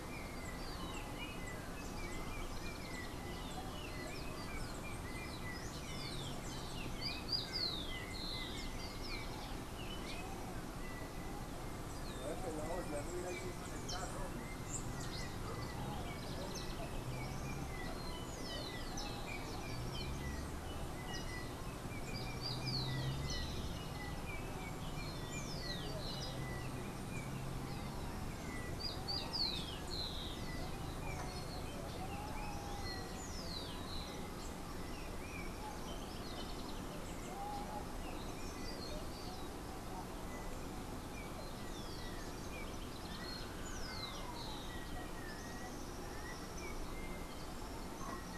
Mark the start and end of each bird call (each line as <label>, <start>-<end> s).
Yellow-backed Oriole (Icterus chrysater), 0.0-9.7 s
Rufous-collared Sparrow (Zonotrichia capensis), 6.7-9.6 s
Yellow-backed Oriole (Icterus chrysater), 11.8-48.4 s
Rufous-collared Sparrow (Zonotrichia capensis), 22.0-30.8 s
Rufous-collared Sparrow (Zonotrichia capensis), 42.5-47.1 s